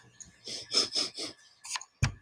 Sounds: Sniff